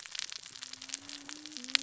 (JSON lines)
{"label": "biophony, cascading saw", "recorder": "SoundTrap 600 or HydroMoth"}